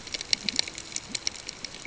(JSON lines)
{"label": "ambient", "recorder": "HydroMoth"}